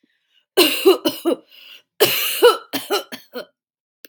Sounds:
Cough